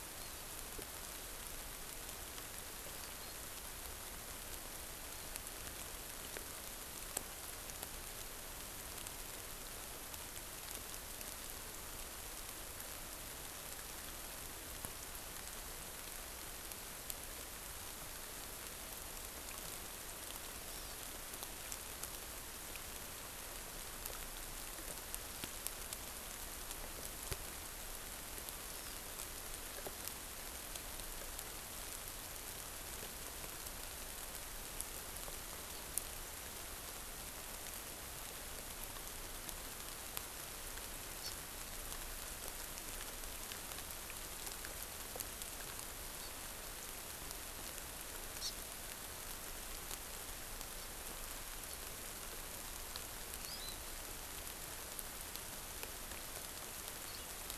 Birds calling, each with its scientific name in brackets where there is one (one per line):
Hawaii Amakihi (Chlorodrepanis virens)